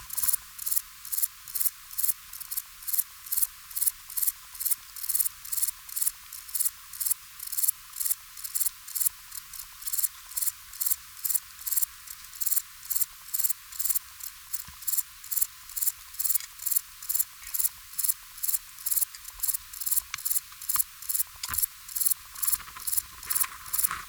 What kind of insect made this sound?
orthopteran